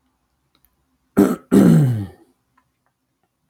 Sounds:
Throat clearing